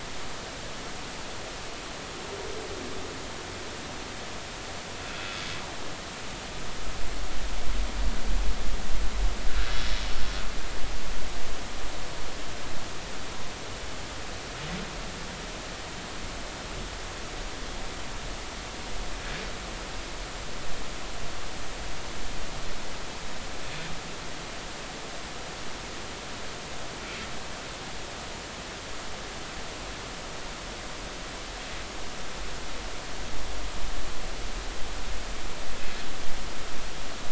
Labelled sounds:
5.2	5.4	humpback whale, 2.5 to 2.7 kHz

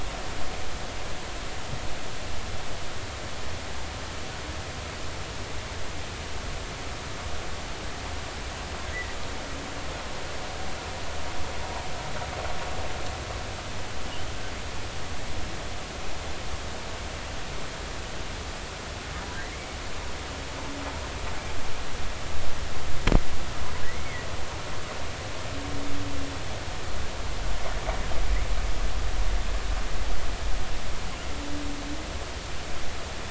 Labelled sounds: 8.9	9.2	humpback whale, 1.8 to 2.0 kHz

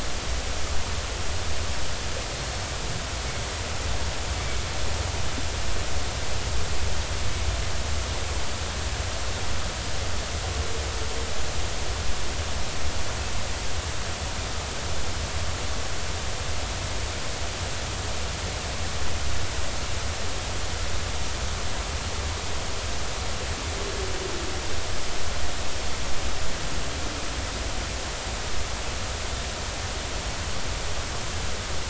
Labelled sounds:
2.4	2.6	Pacific white-sided dolphin, 4.2 to 4.5 kHz

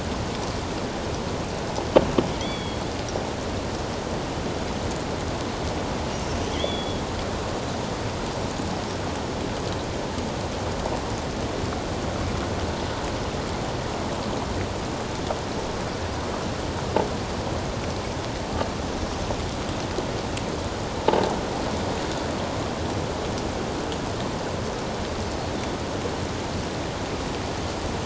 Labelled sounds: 2.4	2.8	killer whale, offshore, 1.9 to 3.5 kHz
6.1	7.0	killer whale, offshore, 2.7 to 3.5 kHz
21.0	21.2	croaking sound likely from a nearby submerged object, 0.81 to 0.97 kHz

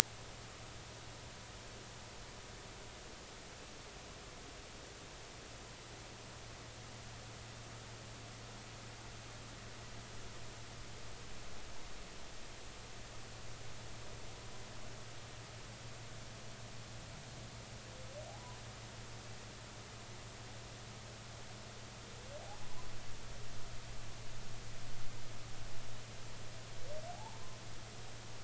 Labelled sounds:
18.3	18.6	humpback whale, 0.80 to 1.1 kHz
27.1	27.4	humpback whale, 0.80 to 1.1 kHz

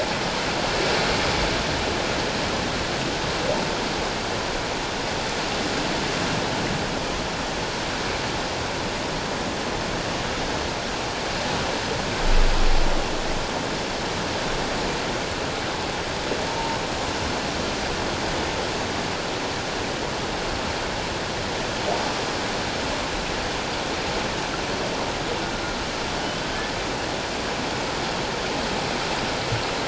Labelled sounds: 16.5	16.8	humpback whale, 0.88 to 0.97 kHz

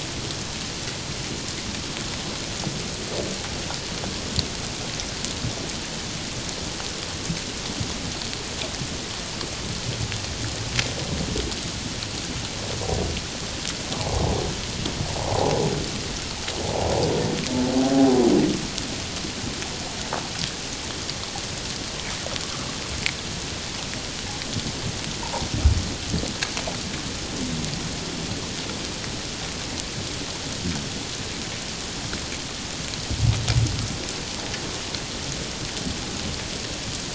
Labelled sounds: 15.2	15.5	humpback whale, 0.78 to 1.1 kHz

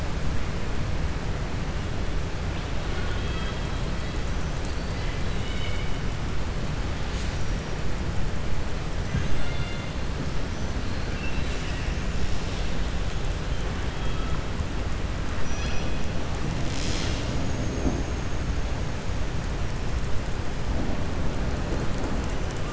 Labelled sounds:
2.8	3.8	killer whale, southern resident, 1.1 to 4.5 kHz
9.3	9.9	killer whale, southern resident, 1.4 to 4.3 kHz

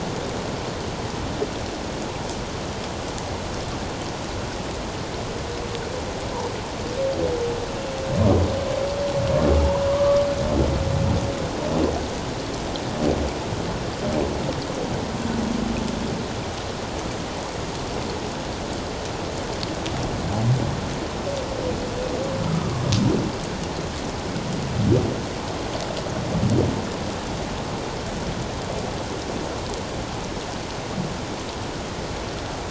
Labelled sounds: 9.6	10.2	humpback whale, 0.84 to 1.3 kHz
22.5	22.7	humpback whale, 1.2 to 1.3 kHz

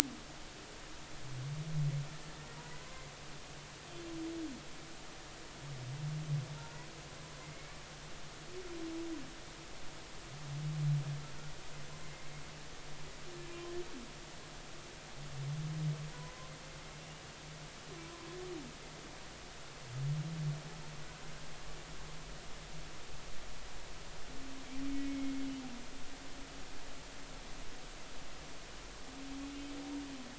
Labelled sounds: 6.6	7.7	humpback whale, 0.86 to 2.3 kHz
12.0	12.3	humpback whale, 2.0 to 2.2 kHz
16.1	16.5	humpback whale, 0.93 to 1.1 kHz
17.0	17.2	humpback whale, 2.7 to 2.9 kHz

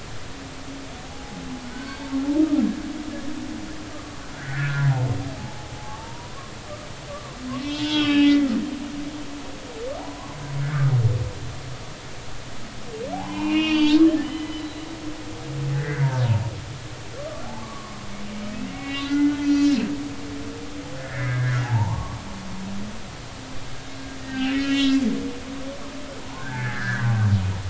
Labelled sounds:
1.1	2.1	humpback whale, 0.80 to 2.3 kHz
4.3	5.1	humpback whale, 0.80 to 1.9 kHz
5.8	6.4	humpback whale, 0.80 to 1.4 kHz
7.1	8.5	humpback whale, 0.99 to 3.5 kHz
10.0	10.9	humpback whale, 0.80 to 1.8 kHz
13.1	14.9	humpback whale, 0.80 to 4.7 kHz
15.7	16.1	humpback whale, 1.4 to 2.1 kHz
17.6	18.0	humpback whale, 0.99 to 1.2 kHz
18.5	19.7	humpback whale, 1.4 to 6.0 kHz
21.0	22.2	humpback whale, 0.80 to 2.3 kHz
24.3	25.0	humpback whale, 1.5 to 3.2 kHz
26.3	27.5	humpback whale, 0.86 to 1.9 kHz

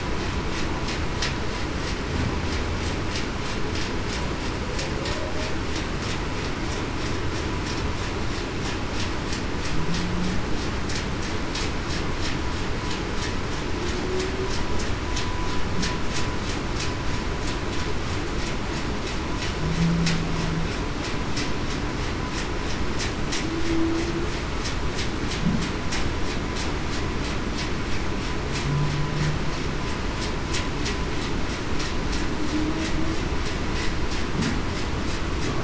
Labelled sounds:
23.6	24.0	humpback whale, 0.30 to 0.35 kHz

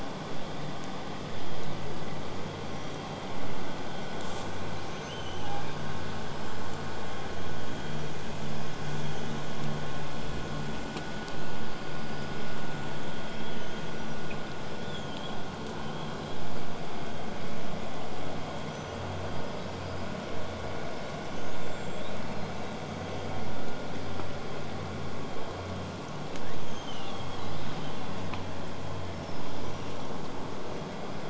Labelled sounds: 4.2	4.5	killer whale, southern resident, J pod, call S05, 0.52 to 8.0 kHz
4.8	6.0	killer whale, southern resident, L pod, call S02iii, 0.69 to 8.0 kHz
11.5	12.5	killer whale, southern resident, 4.3 to 8.0 kHz
13.1	14.2	killer whale, southern resident, whistle, 2.9 to 8.0 kHz
14.8	15.4	killer whale, southern resident, whistle, 3.0 to 7.4 kHz
15.9	16.4	killer whale, southern resident, whistle, 3.0 to 4.1 kHz
18.7	19.2	killer whale, southern resident, 5.7 to 8.0 kHz
19.3	20.2	killer whale, southern resident, whistle, 4.6 to 8.0 kHz
20.9	22.8	killer whale, southern resident, whistle, 3.1 to 7.6 kHz
26.3	28.4	killer whale, southern resident, 1.3 to 8.0 kHz
29.1	30.1	killer whale, southern resident, whistle, 4.8 to 6.0 kHz

